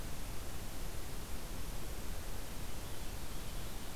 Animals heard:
forest ambience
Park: Katahdin Woods and Waters National Monument